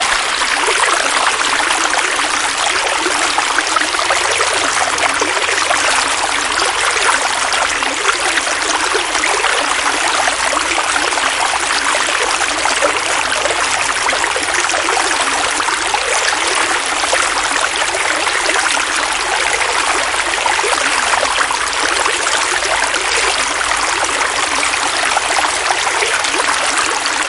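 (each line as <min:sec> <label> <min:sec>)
0:00.0 A river sound continuously repeating outdoors. 0:27.3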